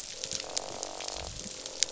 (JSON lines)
{"label": "biophony, croak", "recorder": "SoundTrap 500"}